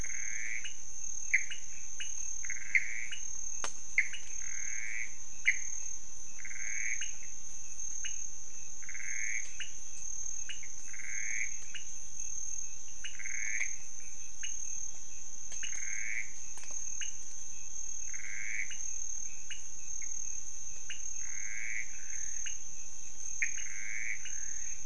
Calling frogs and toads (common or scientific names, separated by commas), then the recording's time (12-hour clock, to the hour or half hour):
Pithecopus azureus, pointedbelly frog
~3am